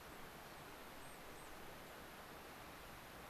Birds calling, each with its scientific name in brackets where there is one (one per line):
unidentified bird